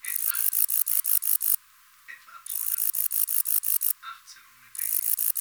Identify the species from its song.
Bicolorana bicolor